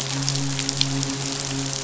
{"label": "biophony, midshipman", "recorder": "SoundTrap 500"}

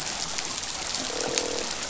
{"label": "biophony, croak", "recorder": "SoundTrap 500"}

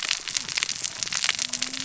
{"label": "biophony, cascading saw", "recorder": "SoundTrap 600 or HydroMoth"}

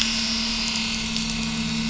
{"label": "anthrophony, boat engine", "recorder": "SoundTrap 500"}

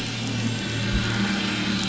{"label": "anthrophony, boat engine", "recorder": "SoundTrap 500"}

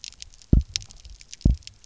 {"label": "biophony, double pulse", "recorder": "SoundTrap 300"}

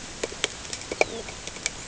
{"label": "ambient", "recorder": "HydroMoth"}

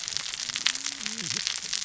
{"label": "biophony, cascading saw", "recorder": "SoundTrap 600 or HydroMoth"}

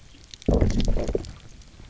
{"label": "biophony, low growl", "recorder": "SoundTrap 300"}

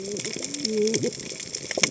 {"label": "biophony, cascading saw", "recorder": "HydroMoth"}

